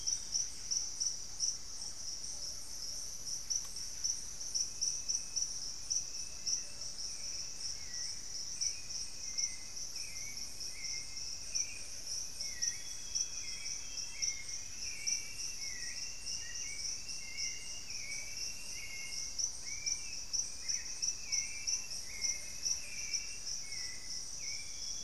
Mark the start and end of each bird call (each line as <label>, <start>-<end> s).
Amazonian Grosbeak (Cyanoloxia rothschildii), 0.0-0.5 s
Thrush-like Wren (Campylorhynchus turdinus), 0.0-4.7 s
Solitary Black Cacique (Cacicus solitarius), 0.0-25.0 s
Band-tailed Manakin (Pipra fasciicauda), 6.0-7.1 s
Hauxwell's Thrush (Turdus hauxwelli), 7.5-25.0 s
Plumbeous Pigeon (Patagioenas plumbea), 11.2-12.3 s
Amazonian Grosbeak (Cyanoloxia rothschildii), 12.3-14.6 s
Plumbeous Pigeon (Patagioenas plumbea), 17.5-18.5 s
Elegant Woodcreeper (Xiphorhynchus elegans), 21.6-23.8 s
Amazonian Grosbeak (Cyanoloxia rothschildii), 24.4-25.0 s